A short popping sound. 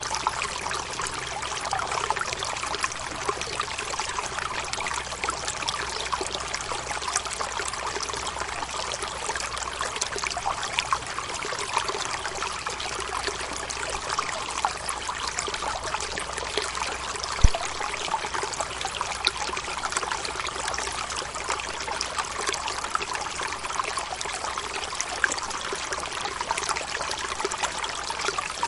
0:17.2 0:17.8

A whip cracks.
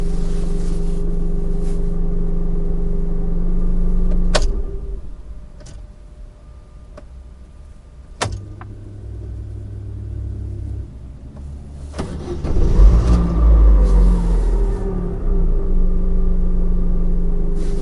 0:04.2 0:05.2, 0:08.1 0:08.4

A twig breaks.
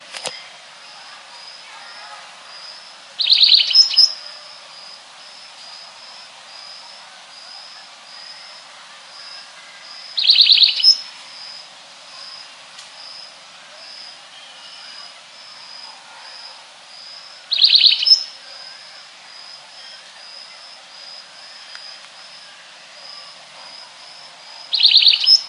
0:12.7 0:12.9

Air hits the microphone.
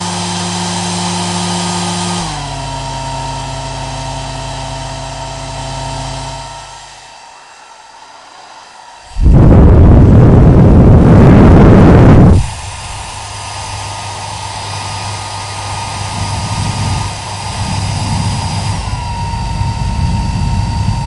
0:17.7 0:21.0

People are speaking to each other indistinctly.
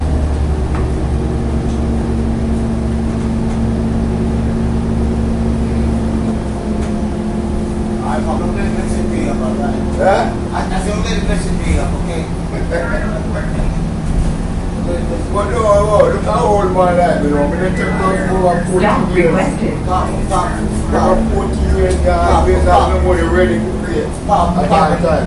0:08.0 0:25.3

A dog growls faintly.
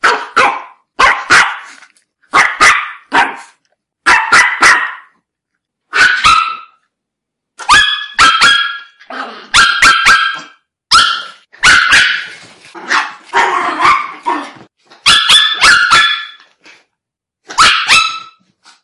0:09.1 0:09.5

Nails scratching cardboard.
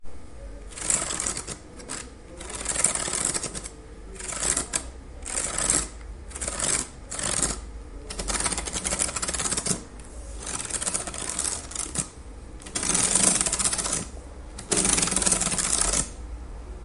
0:00.8 0:01.6, 0:02.5 0:09.8, 0:10.4 0:12.1, 0:12.7 0:14.0, 0:14.6 0:16.1

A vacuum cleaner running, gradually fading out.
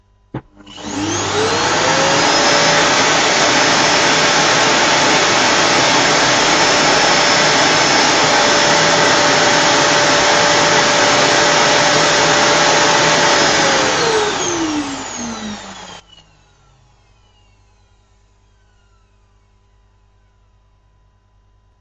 0:00.7 0:16.0

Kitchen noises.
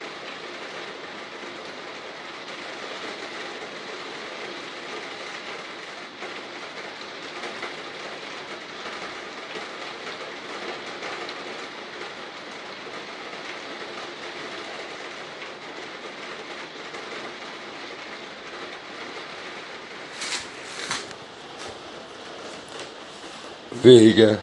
0:19.8 0:21.4

